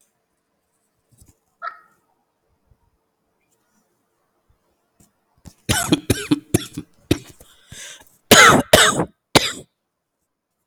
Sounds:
Cough